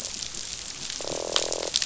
{"label": "biophony, croak", "recorder": "SoundTrap 500"}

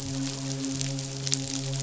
{"label": "biophony, midshipman", "recorder": "SoundTrap 500"}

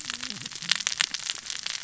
{"label": "biophony, cascading saw", "recorder": "SoundTrap 600 or HydroMoth"}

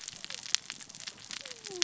{"label": "biophony, cascading saw", "recorder": "SoundTrap 600 or HydroMoth"}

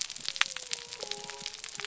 {"label": "biophony", "recorder": "SoundTrap 300"}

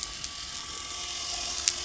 {"label": "anthrophony, boat engine", "recorder": "SoundTrap 300"}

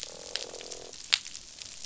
{"label": "biophony, croak", "recorder": "SoundTrap 500"}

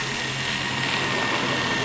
{"label": "anthrophony, boat engine", "recorder": "SoundTrap 500"}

